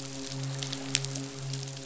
{"label": "biophony, midshipman", "recorder": "SoundTrap 500"}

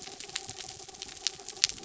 {"label": "anthrophony, mechanical", "recorder": "SoundTrap 300"}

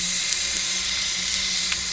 {"label": "anthrophony, boat engine", "recorder": "SoundTrap 300"}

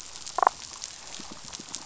{"label": "biophony, damselfish", "recorder": "SoundTrap 500"}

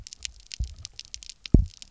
{"label": "biophony, double pulse", "recorder": "SoundTrap 300"}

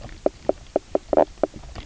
{"label": "biophony, knock croak", "recorder": "SoundTrap 300"}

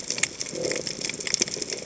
{"label": "biophony", "recorder": "HydroMoth"}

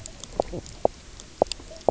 {"label": "biophony, knock croak", "recorder": "SoundTrap 300"}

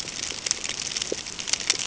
{"label": "ambient", "recorder": "HydroMoth"}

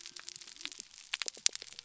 {"label": "biophony", "recorder": "SoundTrap 300"}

